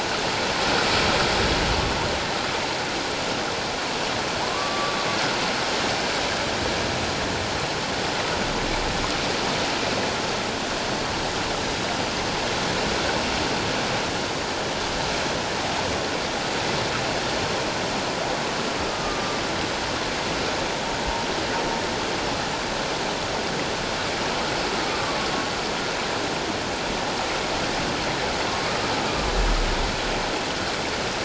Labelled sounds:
4.4	5.0	humpback whale, 0.84 to 1.2 kHz
18.9	19.4	humpback whale, 1.2 to 1.3 kHz
24.9	25.2	humpback whale, 1.1 to 1.3 kHz

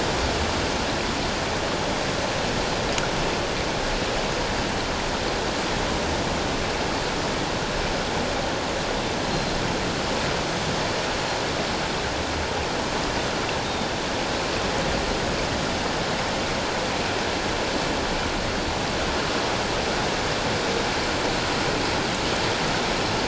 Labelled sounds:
9.3	9.6	Pacific white-sided dolphin, 4.1 to 4.2 kHz
13.6	13.9	Pacific white-sided dolphin, 3.5 to 3.8 kHz

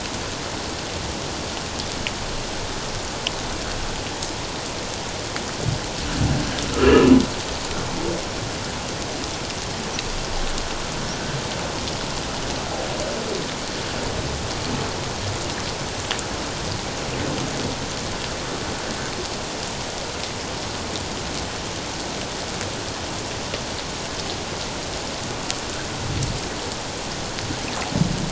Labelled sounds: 6.8	7.2	humpback whale, 2.6 to 2.9 kHz

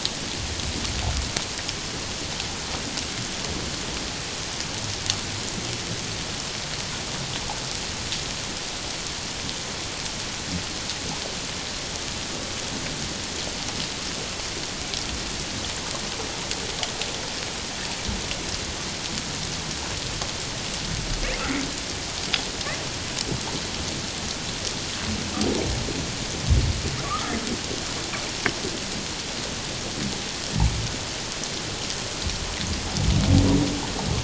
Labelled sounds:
27.0	27.3	humpback whale, 1.1 to 1.4 kHz

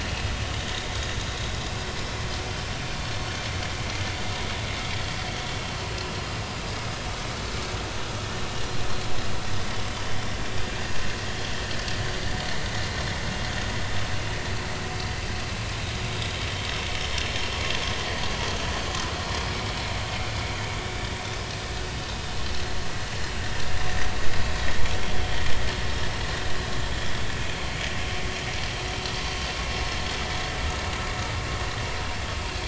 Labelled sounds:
15.8	16.1	vessel noise, 3.7 to 3.9 kHz
25.0	25.4	vessel noise, 3.1 to 3.4 kHz

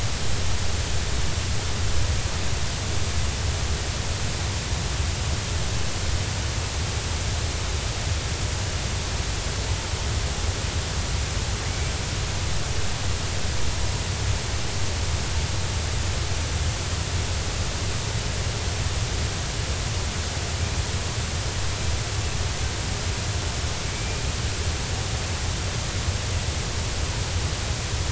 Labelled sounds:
23.9	24.3	killer whale, 2.2 to 2.4 kHz

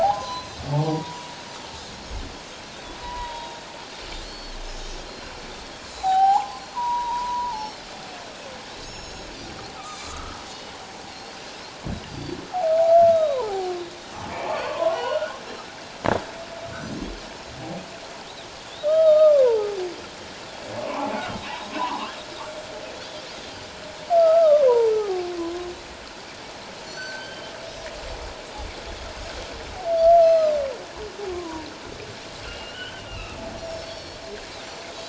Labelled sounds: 0.0	1.3	humpback whale, 0.78 to 1.1 kHz
0.2	0.6	Pacific white-sided dolphin, 3.9 to 4.2 kHz
3.0	3.6	humpback whale, 0.88 to 2.0 kHz
4.2	4.6	Pacific white-sided dolphin, 4.1 to 4.5 kHz
5.1	7.9	Pacific white-sided dolphin, 0.78 to 7.9 kHz
5.8	6.2	humpback whale, 6.7 to 7.3 kHz
6.5	6.8	humpback whale, 4.2 to 4.5 kHz
8.8	9.4	Pacific white-sided dolphin, 3.8 to 8.0 kHz
9.8	10.4	Pacific white-sided dolphin, 1.1 to 7.9 kHz
11.1	11.4	Pacific white-sided dolphin, 4.1 to 4.5 kHz
12.1	12.4	Pacific white-sided dolphin, 4.5 to 4.8 kHz
12.9	13.7	humpback whale, 0.78 to 1.4 kHz
13.1	13.4	Pacific white-sided dolphin, 3.7 to 4.0 kHz
14.6	15.4	humpback whale, 0.94 to 1.6 kHz
14.9	15.7	Pacific white-sided dolphin, 2.8 to 5.5 kHz
18.8	19.7	humpback whale, 0.78 to 1.3 kHz
19.0	19.3	Pacific white-sided dolphin, 3.6 to 3.9 kHz
20.8	22.1	humpback whale, 0.78 to 1.6 kHz
21.5	21.8	Pacific white-sided dolphin, 6.4 to 6.6 kHz
24.2	25.7	humpback whale, 0.78 to 1.4 kHz
26.8	27.5	humpback whale, 4.2 to 6.2 kHz
27.0	27.5	Pacific white-sided dolphin, 1.4 to 6.3 kHz
30.2	30.5	humpback whale, 1.2 to 1.4 kHz
30.2	30.5	Pacific white-sided dolphin, 3.9 to 5.3 kHz
31.3	31.7	humpback whale, 0.91 to 1.2 kHz
32.4	33.4	humpback whale, 1.2 to 3.3 kHz
33.6	34.2	Pacific white-sided dolphin, 4.3 to 5.8 kHz

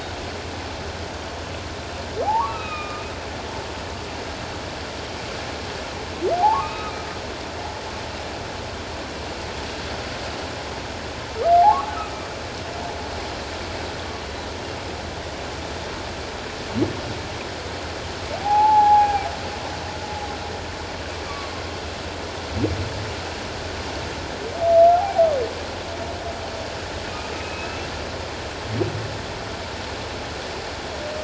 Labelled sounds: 2.2	3.0	humpback whale, 0.78 to 3.9 kHz
6.4	6.9	humpback whale, 0.78 to 2.6 kHz
18.4	19.3	humpback whale, 0.78 to 2.5 kHz
21.2	21.5	humpback whale, 1.1 to 1.2 kHz
24.9	25.3	humpback whale, 0.78 to 0.88 kHz
27.4	27.9	humpback whale, 2.5 to 2.8 kHz

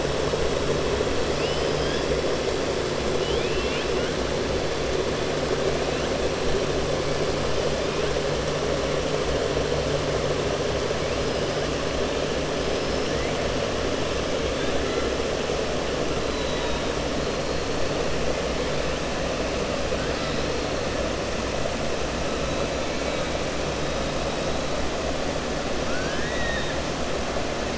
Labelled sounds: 3.1	4.1	killer whale, 1.5 to 3.8 kHz
12.6	13.1	killer whale, 5.0 to 5.6 kHz
16.2	16.8	killer whale, 3.5 to 4.1 kHz

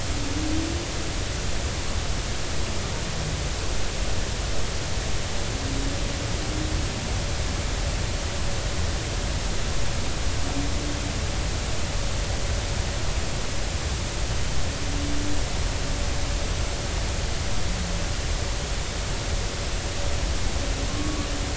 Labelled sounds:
20.9	21.3	humpback whale, 0.99 to 1.2 kHz

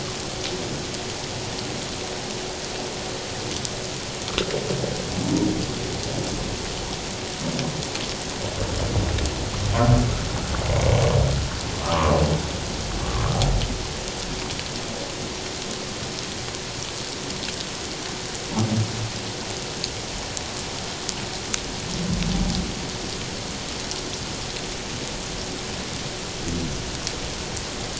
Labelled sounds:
11.8	12.2	humpback whale, 0.88 to 1.3 kHz

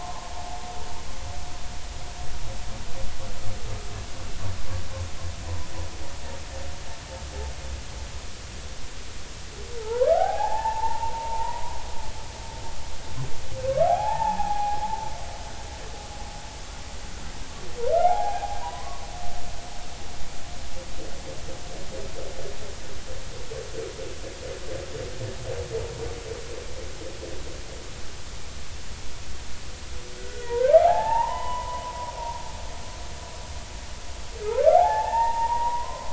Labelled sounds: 9.8	11.8	humpback whale, 0.80 to 1.7 kHz
13.9	15.1	humpback whale, 0.80 to 2.6 kHz
17.9	19.0	humpback whale, 0.80 to 2.2 kHz
30.2	31.8	humpback whale, 0.80 to 3.0 kHz
34.7	36.1	humpback whale, 0.80 to 1.9 kHz

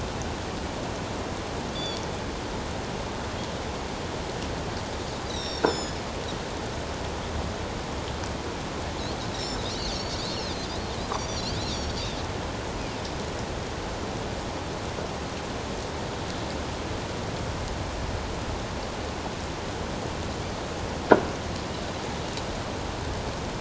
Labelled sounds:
1.7	2.0	Pacific white-sided dolphin, 3.3 to 4.7 kHz
5.3	6.1	Pacific white-sided dolphin, 3.3 to 7.8 kHz
9.3	12.0	Pacific white-sided dolphin, 3.3 to 6.1 kHz

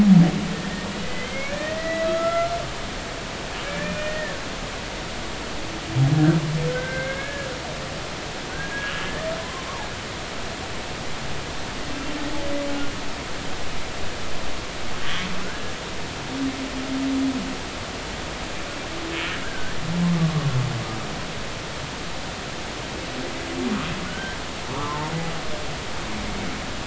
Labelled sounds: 1.0	2.5	humpback whale, 1.2 to 3.2 kHz
3.7	4.4	humpback whale, 1.6 to 2.5 kHz
6.7	7.5	humpback whale, 1.5 to 2.3 kHz
8.5	9.7	humpback whale, 0.96 to 3.0 kHz
15.0	15.7	humpback whale, 1.3 to 3.5 kHz
19.4	20.5	humpback whale, 1.0 to 1.8 kHz
24.1	25.0	humpback whale, 0.99 to 3.2 kHz

